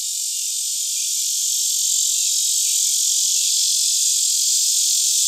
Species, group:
Neotibicen lyricen
Cicadidae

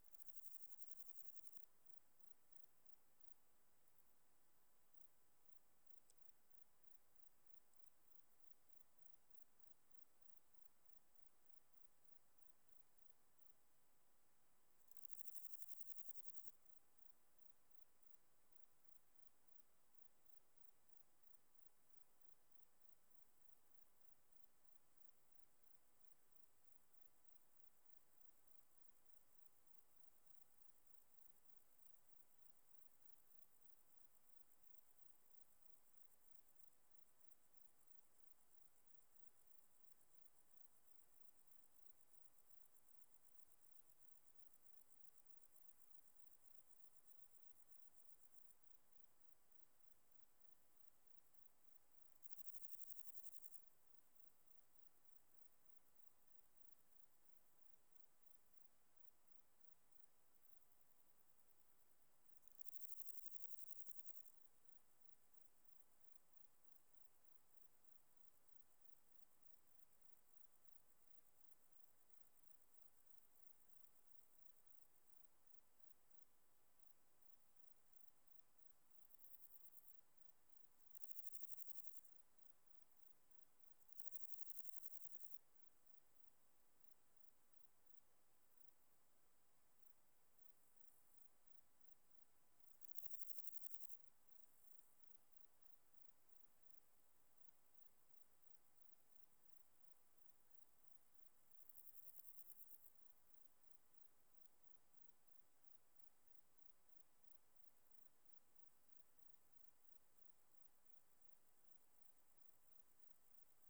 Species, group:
Chorthippus binotatus
Orthoptera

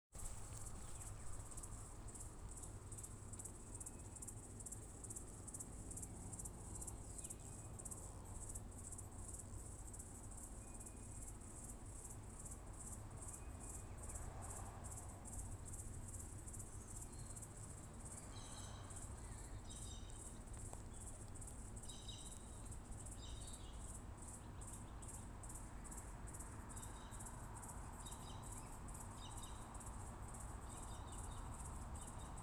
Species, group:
Yoyetta robertsonae
Cicadidae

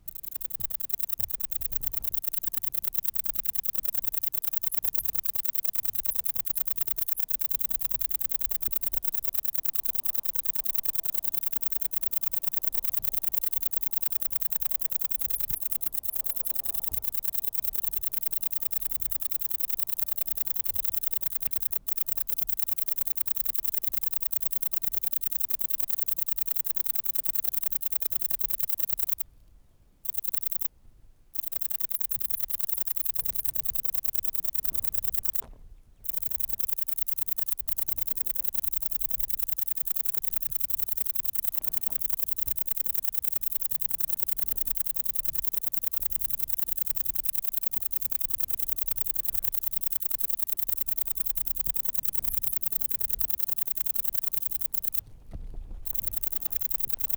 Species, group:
Broughtonia domogledi
Orthoptera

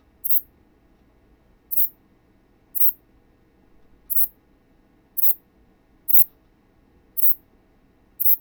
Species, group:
Ephippiger ephippiger
Orthoptera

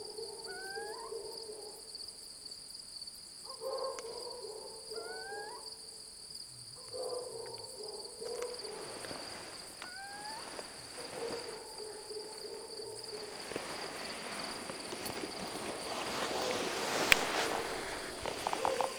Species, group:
Acheta domesticus
Orthoptera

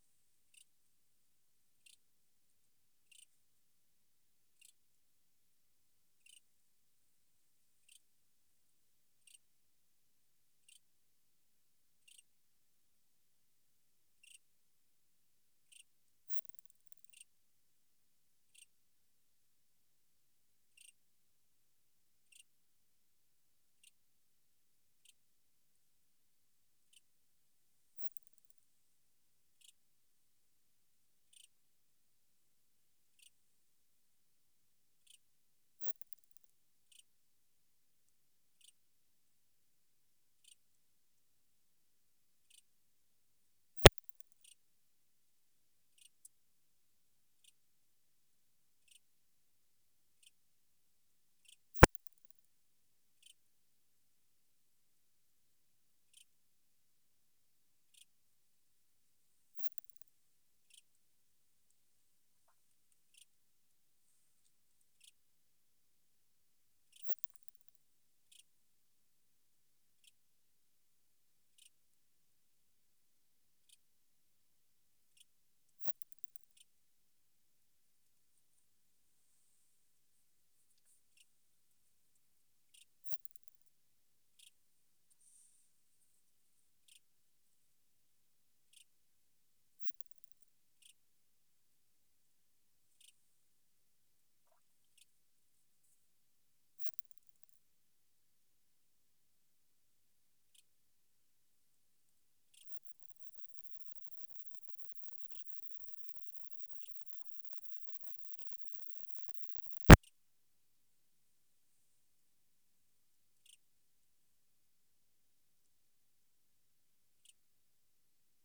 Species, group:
Odontura maroccana
Orthoptera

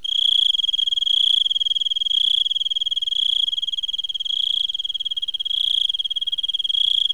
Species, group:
Teleogryllus mitratus
Orthoptera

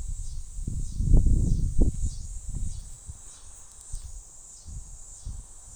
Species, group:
Neotibicen latifasciatus
Cicadidae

